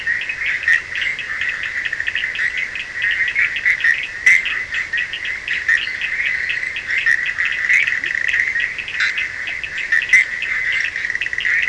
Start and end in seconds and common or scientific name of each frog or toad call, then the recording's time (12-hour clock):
0.0	11.6	Bischoff's tree frog
0.0	11.6	Cochran's lime tree frog
5.8	6.7	fine-lined tree frog
7.9	8.2	Leptodactylus latrans
3:15am